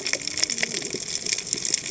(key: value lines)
label: biophony, cascading saw
recorder: HydroMoth